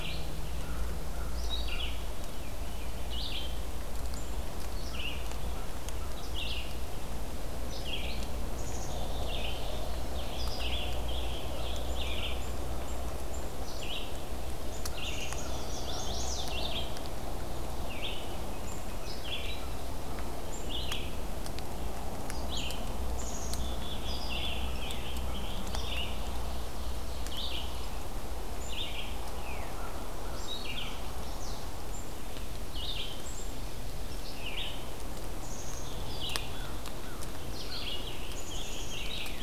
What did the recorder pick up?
American Crow, Red-eyed Vireo, Black-capped Chickadee, Rose-breasted Grosbeak, Chestnut-sided Warbler, Ovenbird